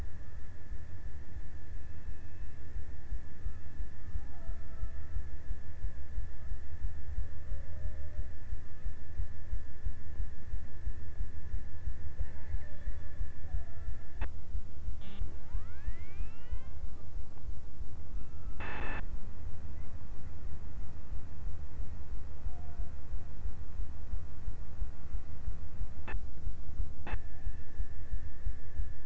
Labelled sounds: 4.0	6.2	killer whale, Bigg's (transient), 0.39 to 1.6 kHz
7.1	9.1	killer whale, Bigg's (transient), 0.36 to 0.87 kHz
11.6	14.7	killer whale, Bigg's (transient), 0.43 to 1.2 kHz
22.0	23.5	killer whale, Bigg's (transient), 0.48 to 0.95 kHz

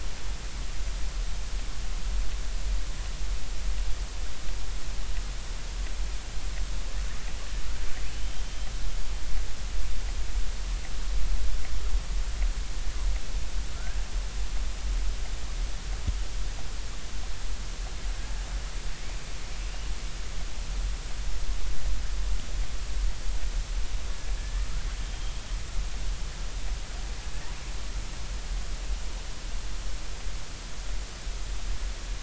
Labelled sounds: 8.2	8.4	killer whale, northern resident, R clan, call N32i, 3.0 to 3.2 kHz
24.4	24.8	killer whale, northern resident, R clan, call N32ii, 1.2 to 1.9 kHz

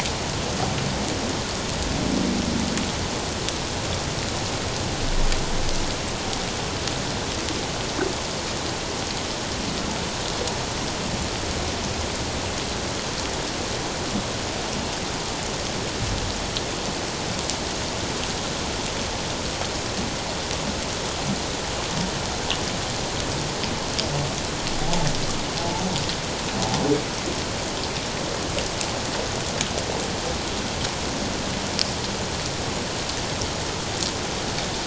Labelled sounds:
24.8	25.1	humpback whale, 0.78 to 0.91 kHz

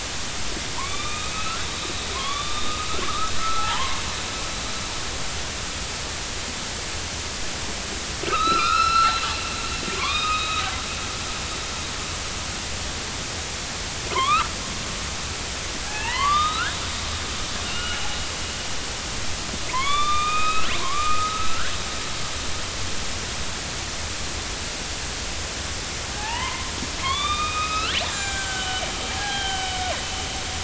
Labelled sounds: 0.8	1.7	killer whale, northern resident, A clan, AB subclan, 0.86 to 4.0 kHz
2.1	4.0	killer whale, northern resident, A clan, AB subclan, 0.80 to 3.8 kHz
8.2	9.2	killer whale, northern resident, A clan, AB subclan, 1.1 to 5.5 kHz
10.0	10.6	killer whale, northern resident, A clan, AB subclan, 0.96 to 3.9 kHz
14.1	14.5	killer whale, northern resident, A clan, AB subclan, 0.93 to 4.1 kHz
15.8	16.9	killer whale, northern resident, A clan, AB subclan, 0.80 to 4.9 kHz
17.6	18.1	killer whale, northern resident, A clan, AB subclan, 1.3 to 2.9 kHz
19.7	21.7	killer whale, northern resident, A clan, AB subclan, 0.90 to 3.9 kHz
26.1	29.7	killer whale, northern resident, A clan, AB subclan, 0.80 to 7.5 kHz

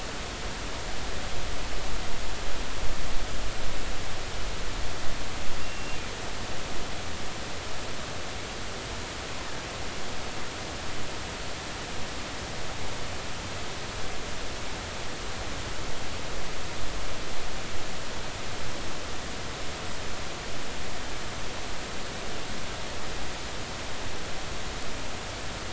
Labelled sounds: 5.6	6.0	killer whale, offshore, 2.7 to 2.8 kHz

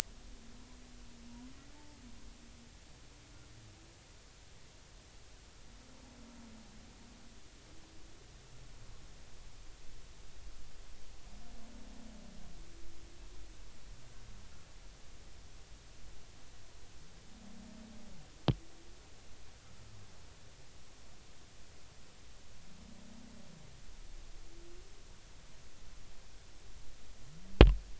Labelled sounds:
1.7	2.0	humpback whale, 0.83 to 0.93 kHz

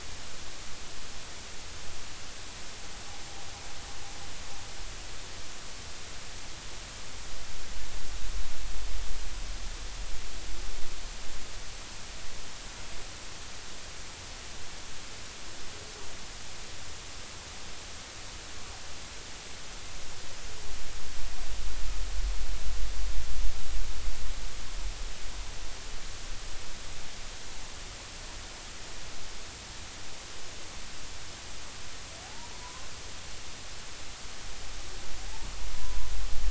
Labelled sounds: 32.2	32.9	humpback whale, 0.80 to 1.1 kHz

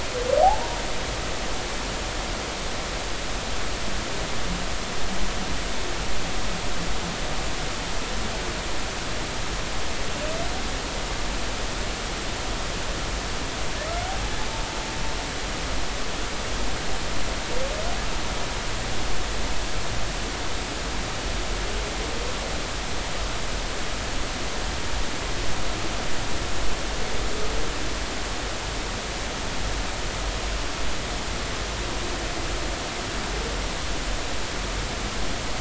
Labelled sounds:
0.4	0.8	humpback whale, 0.80 to 0.99 kHz

